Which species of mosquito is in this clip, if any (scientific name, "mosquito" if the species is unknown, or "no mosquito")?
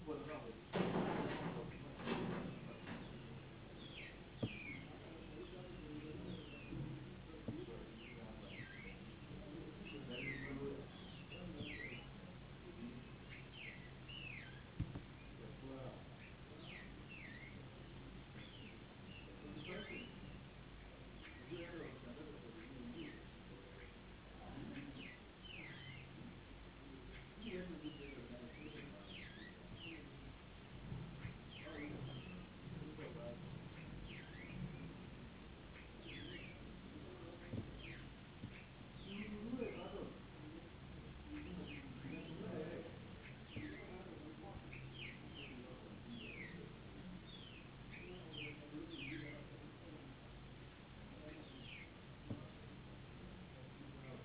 no mosquito